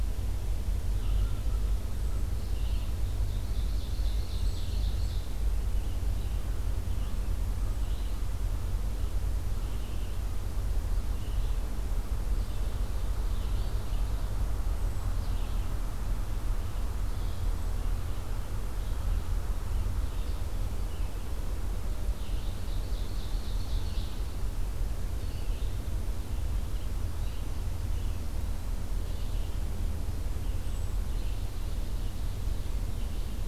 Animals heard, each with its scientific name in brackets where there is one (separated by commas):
American Crow (Corvus brachyrhynchos), Hermit Thrush (Catharus guttatus), Ovenbird (Seiurus aurocapilla), Red-eyed Vireo (Vireo olivaceus)